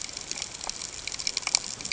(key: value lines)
label: ambient
recorder: HydroMoth